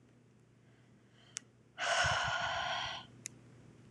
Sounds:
Sigh